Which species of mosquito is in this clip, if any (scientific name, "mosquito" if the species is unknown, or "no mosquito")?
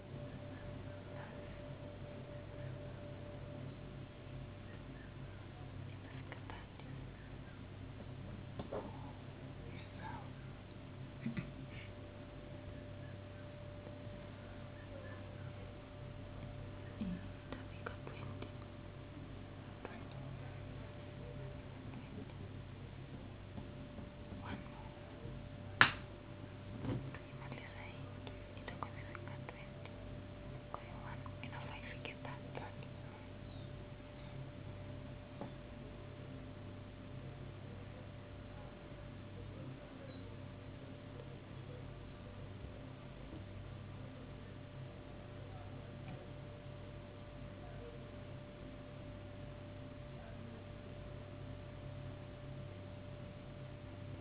no mosquito